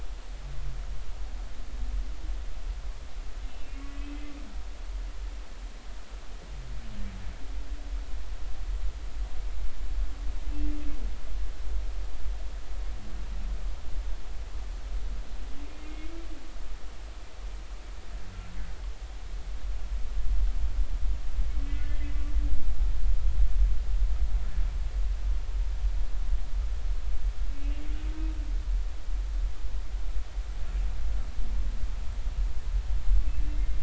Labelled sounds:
3.5	3.8	humpback whale, 2.6 to 2.8 kHz
15.8	16.2	humpback whale, 2.1 to 2.2 kHz
21.7	22.1	humpback whale, 2.0 to 2.1 kHz
27.6	27.8	humpback whale, 2.7 to 2.9 kHz
33.3	33.8	humpback whale, 2.1 to 2.7 kHz

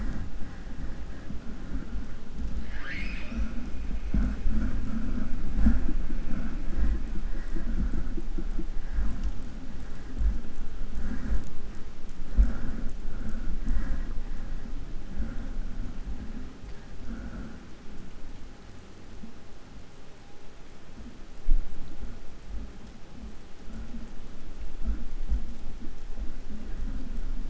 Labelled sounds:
2.5	3.7	killer whale, 0.30 to 8.0 kHz

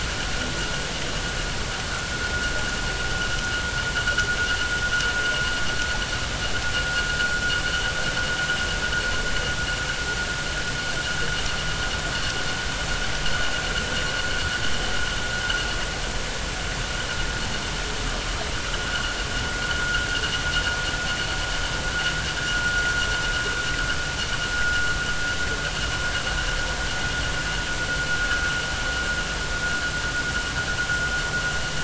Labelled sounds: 18.9	19.1	vessel noise, 1.3 to 1.6 kHz
19.8	20.1	vessel noise, 1.3 to 1.6 kHz

